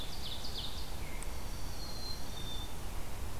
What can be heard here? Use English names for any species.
Ovenbird, Red-eyed Vireo, Dark-eyed Junco, Black-capped Chickadee